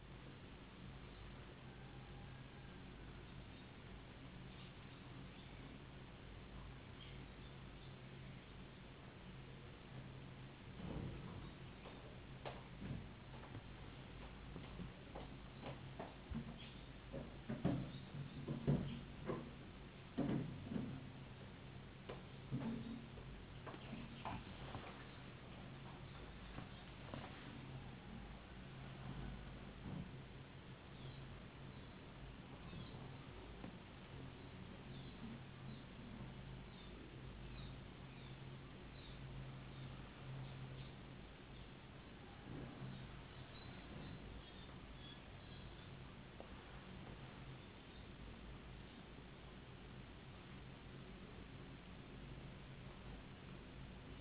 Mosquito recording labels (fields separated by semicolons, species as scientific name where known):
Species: no mosquito; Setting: insect culture